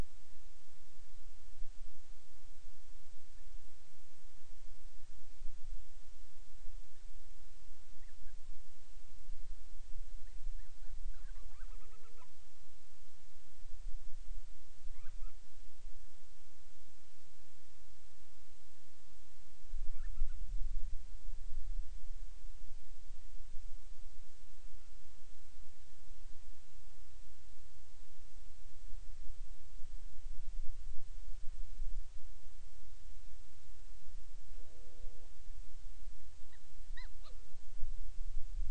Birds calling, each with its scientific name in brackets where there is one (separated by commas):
Hawaiian Petrel (Pterodroma sandwichensis), Band-rumped Storm-Petrel (Hydrobates castro)